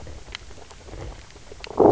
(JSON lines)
{"label": "biophony, knock croak", "recorder": "SoundTrap 300"}